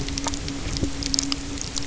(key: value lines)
label: anthrophony, boat engine
recorder: SoundTrap 300